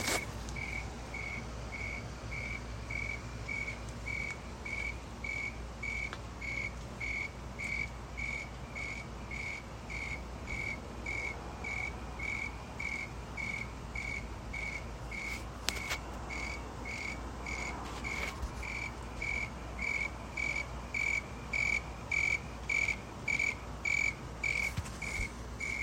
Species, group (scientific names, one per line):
Oecanthus rileyi
Orthoptera